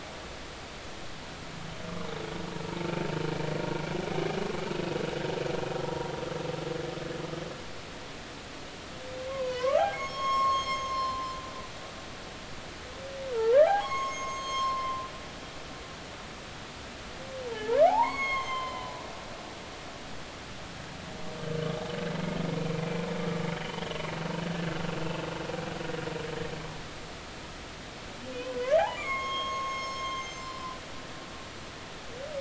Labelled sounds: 9.3	11.4	humpback whale, 0.96 to 7.6 kHz
13.3	15.0	humpback whale, 0.80 to 7.6 kHz
17.5	19.0	humpback whale, 0.80 to 6.7 kHz
22.6	22.8	humpback whale, 2.3 to 2.5 kHz
23.5	24.0	humpback whale, 2.8 to 3.2 kHz
28.4	30.7	humpback whale, 0.96 to 7.4 kHz

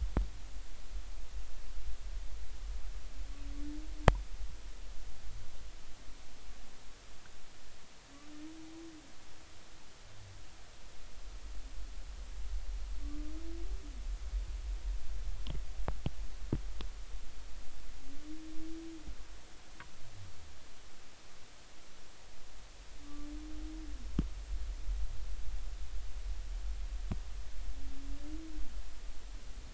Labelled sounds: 13.0	13.3	humpback whale, 1.1 to 1.2 kHz
23.0	23.3	humpback whale, 1.1 to 1.2 kHz

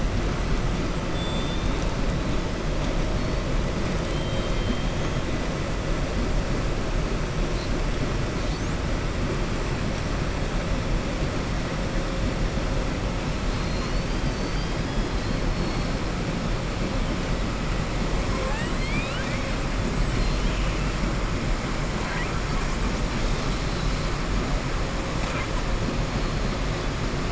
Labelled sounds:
1.1	1.7	killer whale, southern resident, 3.1 to 4.0 kHz
4.0	4.9	killer whale, southern resident, 3.0 to 4.2 kHz
18.3	19.5	killer whale, southern resident, 0.50 to 8.0 kHz
20.1	20.9	killer whale, southern resident, 2.4 to 4.3 kHz

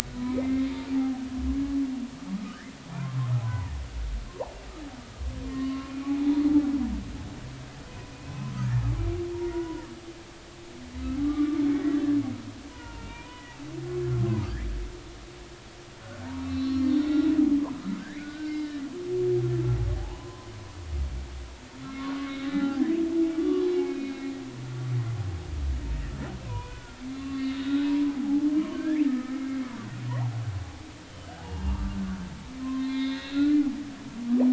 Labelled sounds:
0.2	1.2	humpback whale, 0.80 to 2.4 kHz
2.3	2.6	humpback whale, 1.1 to 1.3 kHz
2.9	3.8	humpback whale, 0.80 to 2.0 kHz
5.5	6.4	humpback whale, 0.80 to 1.2 kHz
8.1	8.8	humpback whale, 0.80 to 2.6 kHz
9.4	9.9	humpback whale, 0.90 to 1.5 kHz
11.2	12.0	humpback whale, 1.1 to 2.0 kHz
12.7	13.6	humpback whale, 0.86 to 3.0 kHz
16.0	17.3	humpback whale, 1.4 to 4.4 kHz
18.0	18.7	humpback whale, 1.4 to 2.5 kHz
20.0	20.5	humpback whale, 0.80 to 1.1 kHz
22.0	22.9	humpback whale, 0.80 to 3.9 kHz
23.4	24.3	humpback whale, 1.0 to 3.9 kHz
26.4	29.3	humpback whale, 0.80 to 3.9 kHz
31.1	33.6	humpback whale, 0.80 to 4.2 kHz

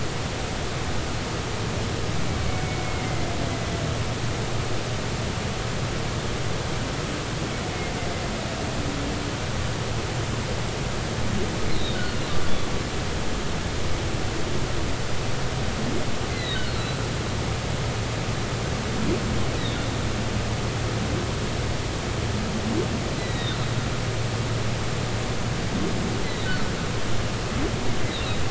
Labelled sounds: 2.8	3.3	humpback whale, 2.0 to 2.2 kHz
11.7	12.3	humpback whale, 1.3 to 4.2 kHz
16.3	16.6	humpback whale, 1.8 to 4.3 kHz
19.6	19.9	humpback whale, 3.6 to 4.0 kHz
23.2	23.6	humpback whale, 1.8 to 4.1 kHz

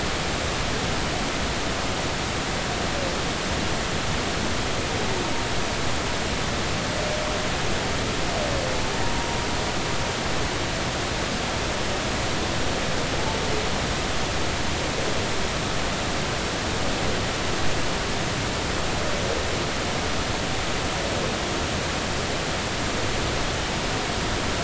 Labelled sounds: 9.0	9.3	humpback whale, 0.90 to 0.99 kHz

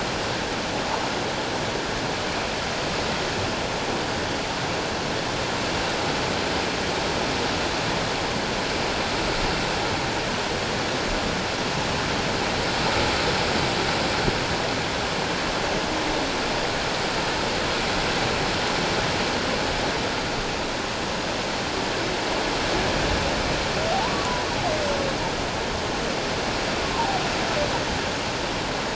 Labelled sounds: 23.9	24.3	humpback whale, 0.78 to 1.2 kHz
26.9	27.2	humpback whale, 0.78 to 1.1 kHz

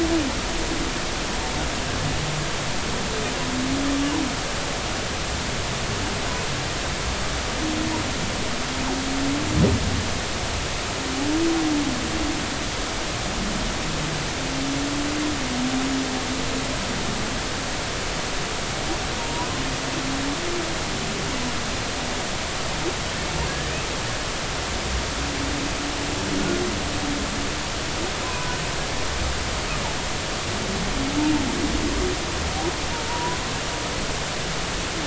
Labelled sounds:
19.2	19.5	humpback whale, 0.90 to 1.0 kHz
28.2	28.6	humpback whale, 0.93 to 1.1 kHz
33.1	33.4	humpback whale, 0.90 to 1.1 kHz

